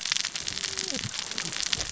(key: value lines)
label: biophony, cascading saw
recorder: SoundTrap 600 or HydroMoth